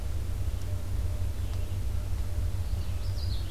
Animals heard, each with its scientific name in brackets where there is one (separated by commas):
Common Yellowthroat (Geothlypis trichas), Red-eyed Vireo (Vireo olivaceus)